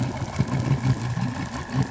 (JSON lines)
{"label": "anthrophony, boat engine", "recorder": "SoundTrap 500"}